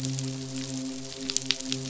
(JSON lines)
{"label": "biophony, midshipman", "recorder": "SoundTrap 500"}